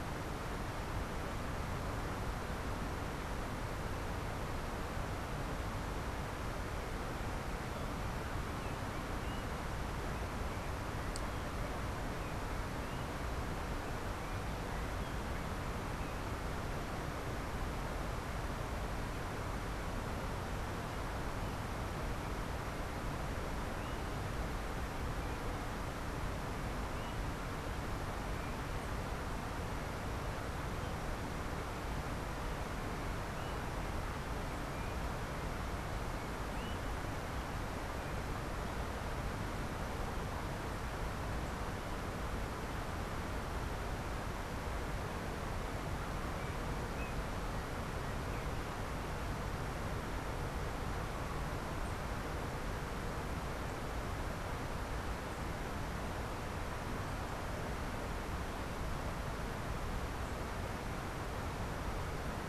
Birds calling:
Yellow-backed Oriole (Icterus chrysater)

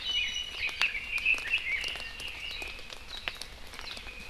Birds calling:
Red-billed Leiothrix (Leiothrix lutea), Iiwi (Drepanis coccinea)

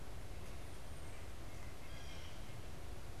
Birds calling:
White-breasted Nuthatch (Sitta carolinensis), Blue Jay (Cyanocitta cristata)

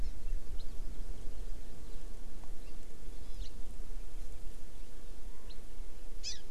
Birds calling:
House Finch (Haemorhous mexicanus), Hawaii Amakihi (Chlorodrepanis virens)

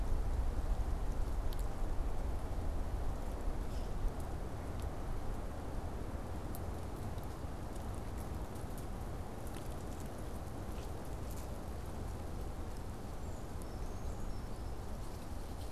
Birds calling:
Brown Creeper (Certhia americana)

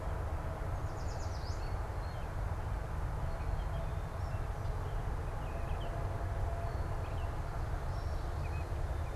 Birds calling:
Yellow Warbler (Setophaga petechia), American Robin (Turdus migratorius)

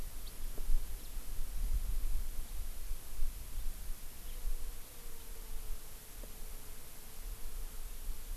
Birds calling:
House Finch (Haemorhous mexicanus)

